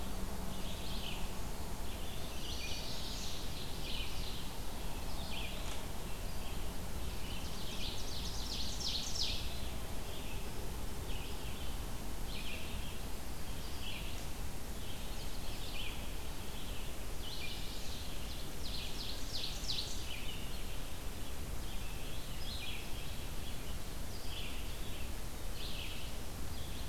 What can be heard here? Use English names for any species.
Red-eyed Vireo, Chestnut-sided Warbler, Ovenbird, Black-throated Blue Warbler